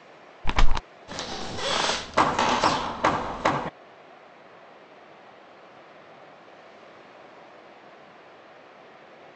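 At 0.44 seconds, a bird can be heard. Then, at 1.07 seconds, squeaking is heard. Over it, at 2.15 seconds, you can hear the sound of a hammer.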